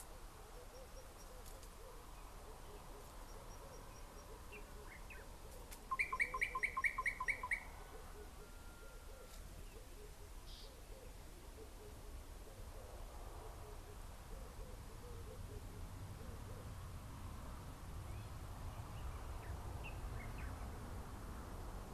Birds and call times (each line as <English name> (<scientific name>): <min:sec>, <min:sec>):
Slate-colored Boubou (Laniarius funebris): 0:06.7
Red-eyed Dove (Streptopelia semitorquata): 0:10.0